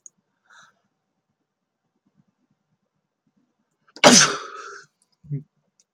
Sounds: Sneeze